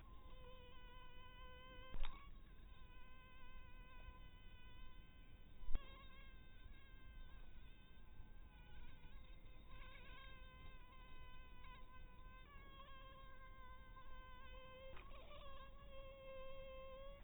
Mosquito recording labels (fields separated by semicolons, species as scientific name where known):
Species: mosquito; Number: one; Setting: cup